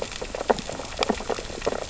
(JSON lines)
{"label": "biophony, sea urchins (Echinidae)", "recorder": "SoundTrap 600 or HydroMoth"}